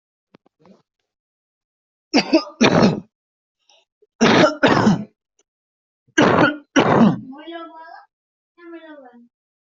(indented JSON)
{
  "expert_labels": [
    {
      "quality": "poor",
      "cough_type": "unknown",
      "dyspnea": false,
      "wheezing": false,
      "stridor": false,
      "choking": false,
      "congestion": false,
      "nothing": true,
      "diagnosis": "lower respiratory tract infection",
      "severity": "mild"
    }
  ],
  "age": 19,
  "gender": "female",
  "respiratory_condition": false,
  "fever_muscle_pain": false,
  "status": "COVID-19"
}